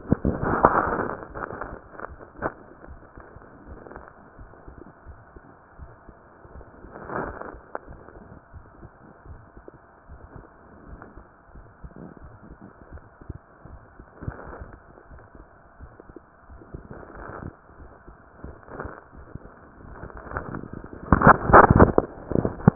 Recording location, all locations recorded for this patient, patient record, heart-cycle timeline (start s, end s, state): mitral valve (MV)
aortic valve (AV)+pulmonary valve (PV)+tricuspid valve (TV)+mitral valve (MV)
#Age: Child
#Sex: Female
#Height: 130.0 cm
#Weight: 36.9 kg
#Pregnancy status: False
#Murmur: Present
#Murmur locations: aortic valve (AV)+mitral valve (MV)+pulmonary valve (PV)+tricuspid valve (TV)
#Most audible location: pulmonary valve (PV)
#Systolic murmur timing: Early-systolic
#Systolic murmur shape: Plateau
#Systolic murmur grading: II/VI
#Systolic murmur pitch: Low
#Systolic murmur quality: Blowing
#Diastolic murmur timing: nan
#Diastolic murmur shape: nan
#Diastolic murmur grading: nan
#Diastolic murmur pitch: nan
#Diastolic murmur quality: nan
#Outcome: Abnormal
#Campaign: 2015 screening campaign
0.00	3.66	unannotated
3.66	3.80	S1
3.80	3.92	systole
3.92	4.04	S2
4.04	4.37	diastole
4.37	4.48	S1
4.48	4.66	systole
4.66	4.76	S2
4.76	5.06	diastole
5.06	5.16	S1
5.16	5.33	systole
5.33	5.41	S2
5.41	5.78	diastole
5.78	5.90	S1
5.90	6.04	systole
6.04	6.14	S2
6.14	6.53	diastole
6.53	6.64	S1
6.64	6.80	systole
6.80	6.91	S2
6.91	7.23	diastole
7.23	7.36	S1
7.36	7.50	systole
7.50	7.62	S2
7.62	7.88	diastole
7.88	8.00	S1
8.00	8.12	systole
8.12	8.22	S2
8.22	8.52	diastole
8.52	8.64	S1
8.64	8.80	systole
8.80	8.90	S2
8.90	9.26	diastole
9.26	9.40	S1
9.40	9.55	systole
9.55	9.64	S2
9.64	10.08	diastole
10.08	10.20	S1
10.20	22.75	unannotated